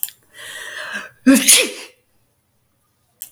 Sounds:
Sneeze